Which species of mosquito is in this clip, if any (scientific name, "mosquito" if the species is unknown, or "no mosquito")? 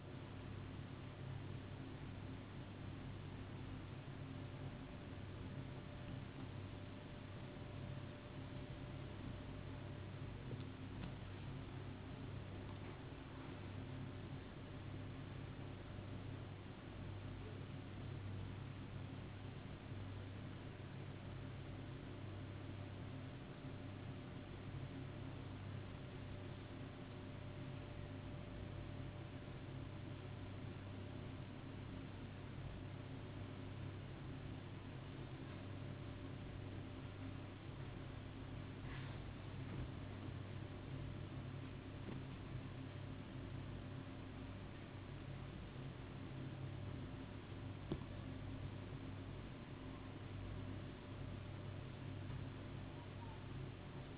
no mosquito